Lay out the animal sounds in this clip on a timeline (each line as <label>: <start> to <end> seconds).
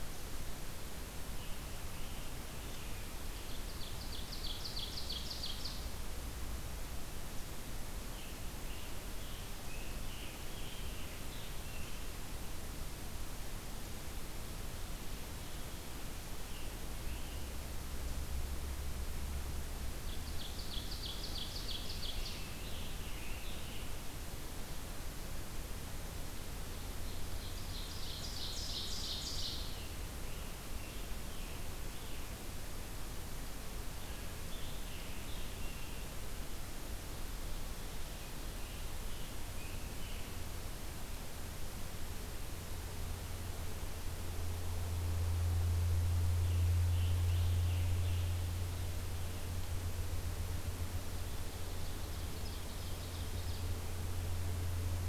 Scarlet Tanager (Piranga olivacea): 1.0 to 3.8 seconds
Ovenbird (Seiurus aurocapilla): 3.3 to 5.9 seconds
Scarlet Tanager (Piranga olivacea): 7.9 to 12.4 seconds
Scarlet Tanager (Piranga olivacea): 16.0 to 18.2 seconds
Ovenbird (Seiurus aurocapilla): 20.0 to 22.8 seconds
Scarlet Tanager (Piranga olivacea): 21.9 to 24.3 seconds
Ovenbird (Seiurus aurocapilla): 26.8 to 29.9 seconds
Scarlet Tanager (Piranga olivacea): 29.7 to 33.0 seconds
Scarlet Tanager (Piranga olivacea): 34.0 to 36.2 seconds
Scarlet Tanager (Piranga olivacea): 38.0 to 40.4 seconds
Scarlet Tanager (Piranga olivacea): 46.2 to 48.6 seconds
Ovenbird (Seiurus aurocapilla): 51.2 to 53.7 seconds